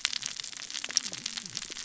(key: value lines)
label: biophony, cascading saw
recorder: SoundTrap 600 or HydroMoth